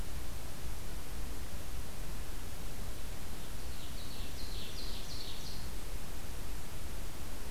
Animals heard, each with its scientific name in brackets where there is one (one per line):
Ovenbird (Seiurus aurocapilla)